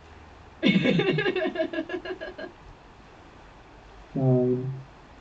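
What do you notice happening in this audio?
At 0.61 seconds, laughter can be heard. After that, at 4.14 seconds, a voice says "Nine." A steady noise lies about 25 decibels below the sounds.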